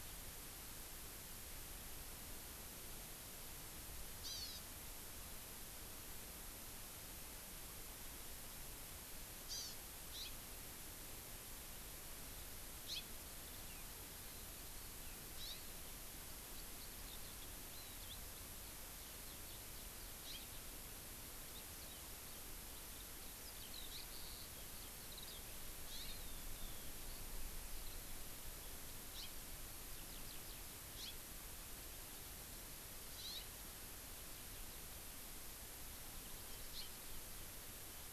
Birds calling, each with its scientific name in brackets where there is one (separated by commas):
Hawaii Amakihi (Chlorodrepanis virens), Eurasian Skylark (Alauda arvensis), House Finch (Haemorhous mexicanus)